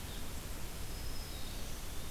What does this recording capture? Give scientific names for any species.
Vireo solitarius, Setophaga virens, Contopus virens